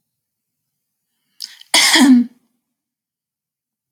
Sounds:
Cough